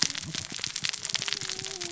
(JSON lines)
{"label": "biophony, cascading saw", "recorder": "SoundTrap 600 or HydroMoth"}